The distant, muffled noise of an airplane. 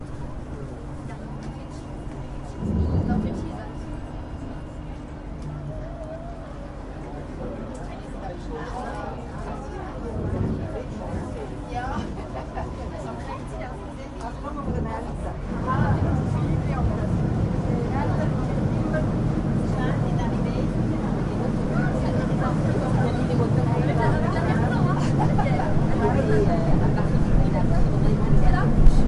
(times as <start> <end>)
2.5 3.7, 10.3 12.7, 14.6 29.1